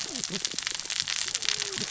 {"label": "biophony, cascading saw", "recorder": "SoundTrap 600 or HydroMoth"}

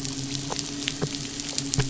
{"label": "biophony, midshipman", "recorder": "SoundTrap 500"}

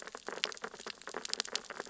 {"label": "biophony, sea urchins (Echinidae)", "recorder": "SoundTrap 600 or HydroMoth"}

